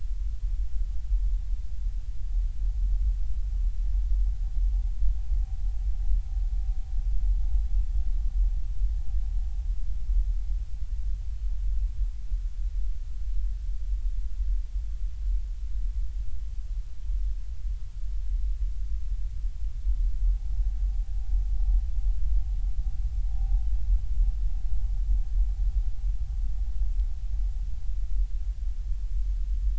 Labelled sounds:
23.3	23.6	vessel noise, 0.80 to 0.86 kHz

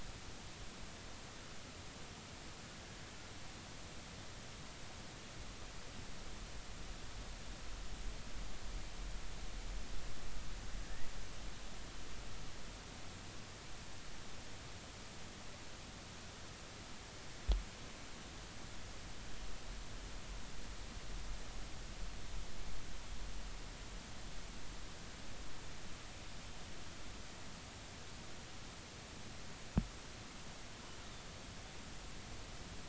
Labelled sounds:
10.8	11.1	killer whale, northern resident, R clan, call N32ii, 1.6 to 2.0 kHz

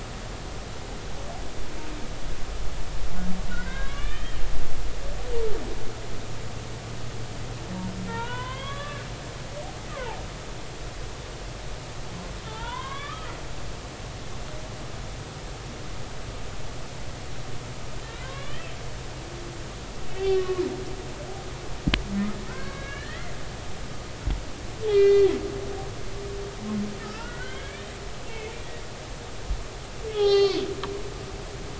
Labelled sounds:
3.5	4.4	humpback whale, 0.99 to 4.0 kHz
8.1	9.0	humpback whale, 0.86 to 3.6 kHz
9.9	10.2	humpback whale, 0.80 to 1.3 kHz
12.5	13.3	humpback whale, 0.83 to 3.8 kHz
18.2	18.7	humpback whale, 0.99 to 3.6 kHz
20.1	20.7	humpback whale, 0.96 to 3.2 kHz
22.5	23.3	humpback whale, 1.3 to 3.9 kHz
24.9	25.3	humpback whale, 1.9 to 4.4 kHz
27.0	28.5	humpback whale, 1.2 to 3.4 kHz
30.1	30.7	humpback whale, 0.80 to 5.4 kHz

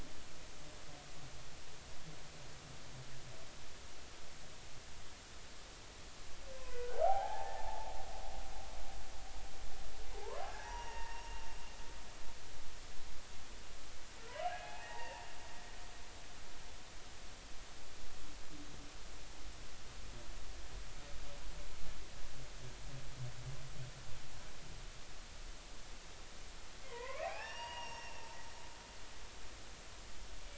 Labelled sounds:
6.5	7.9	humpback whale, 0.80 to 1.6 kHz
10.2	11.5	humpback whale, 0.80 to 5.8 kHz
14.5	15.3	humpback whale, 0.80 to 2.6 kHz
26.8	28.3	humpback whale, 0.80 to 5.8 kHz

